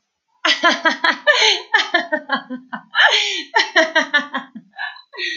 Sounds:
Laughter